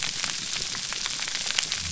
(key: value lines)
label: biophony
recorder: SoundTrap 300